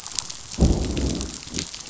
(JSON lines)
{"label": "biophony, growl", "recorder": "SoundTrap 500"}